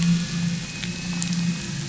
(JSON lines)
{"label": "anthrophony, boat engine", "recorder": "SoundTrap 500"}